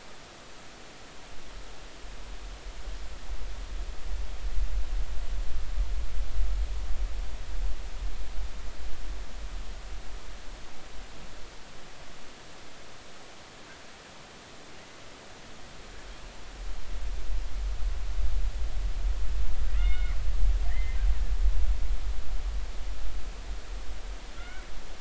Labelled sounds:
19.8	21.0	killer whale, Bigg's (transient), 1.7 to 3.7 kHz
24.3	24.6	killer whale, Bigg's (transient), 1.3 to 2.3 kHz

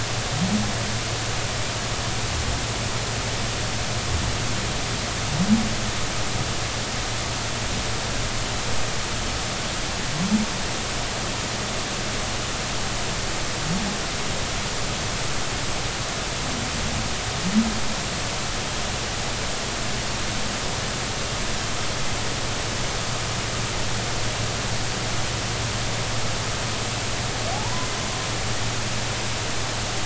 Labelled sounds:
27.5	27.9	humpback whale, 0.80 to 1.1 kHz

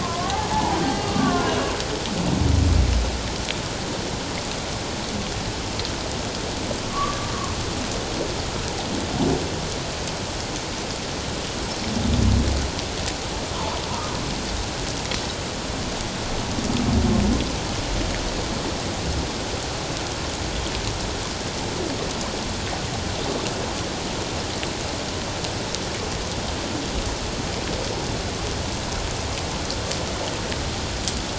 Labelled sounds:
0.0	1.6	humpback whale, 0.78 to 1.7 kHz
6.9	7.3	humpback whale, 1.0 to 1.2 kHz
13.6	13.8	humpback whale, 0.81 to 1.2 kHz

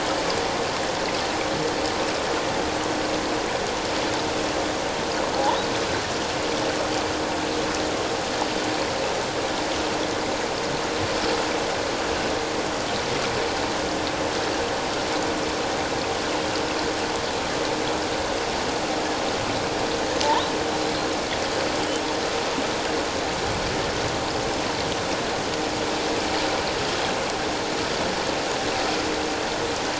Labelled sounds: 5.3	5.6	killer whale, offshore, 0.78 to 1.1 kHz

